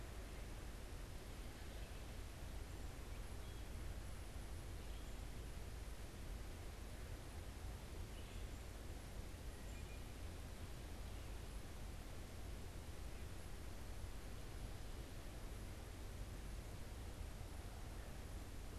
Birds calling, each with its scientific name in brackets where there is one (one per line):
Wood Thrush (Hylocichla mustelina)